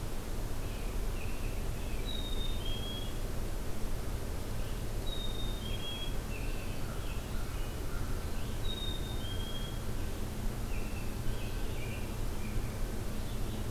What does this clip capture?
American Robin, Black-capped Chickadee, Red-eyed Vireo, American Crow